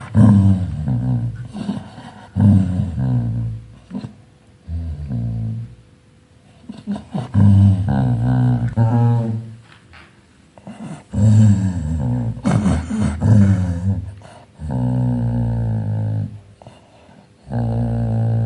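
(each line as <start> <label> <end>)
0.0 A dog growls repeatedly. 3.7
4.7 A dog growls. 5.8
6.8 A dog growls. 9.7
10.8 A dog growls. 18.5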